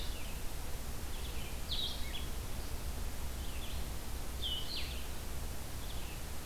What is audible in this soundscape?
Blue-headed Vireo, Red-eyed Vireo